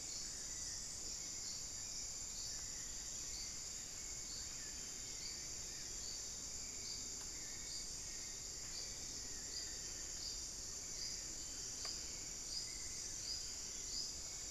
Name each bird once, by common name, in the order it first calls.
Black-faced Antthrush